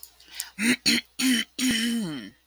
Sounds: Throat clearing